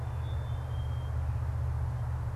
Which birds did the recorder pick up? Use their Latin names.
Poecile atricapillus